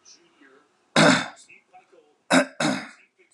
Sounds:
Throat clearing